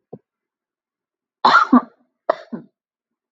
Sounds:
Cough